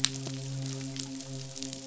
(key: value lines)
label: biophony, midshipman
recorder: SoundTrap 500